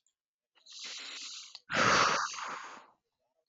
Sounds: Sigh